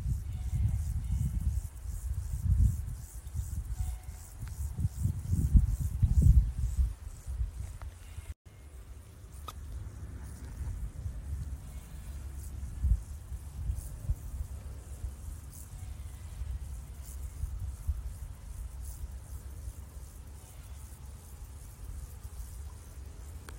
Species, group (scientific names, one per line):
Chorthippus brunneus
Orthoptera